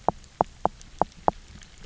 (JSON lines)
{"label": "biophony, knock", "recorder": "SoundTrap 300"}